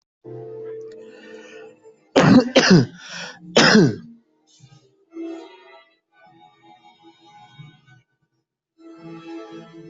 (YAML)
expert_labels:
- quality: ok
  cough_type: unknown
  dyspnea: false
  wheezing: false
  stridor: false
  choking: false
  congestion: false
  nothing: true
  diagnosis: healthy cough
  severity: pseudocough/healthy cough
age: 43
gender: female
respiratory_condition: false
fever_muscle_pain: false
status: healthy